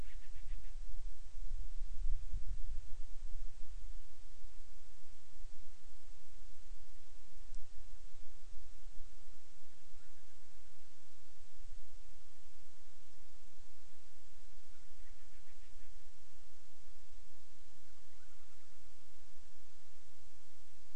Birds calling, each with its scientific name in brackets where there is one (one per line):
Band-rumped Storm-Petrel (Hydrobates castro)